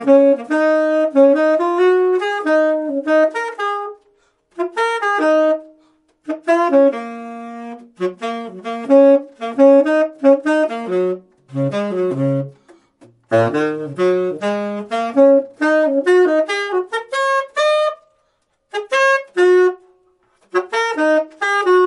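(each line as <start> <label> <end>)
0.0 A saxophone plays a soft, melodic tune that gradually rises to higher notes toward the end. 21.9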